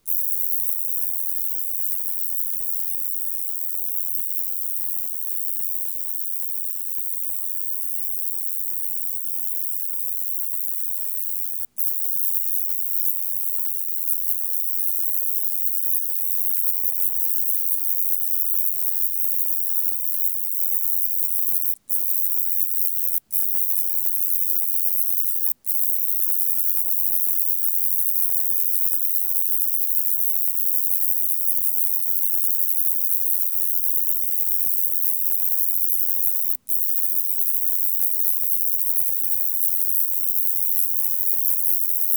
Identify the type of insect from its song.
orthopteran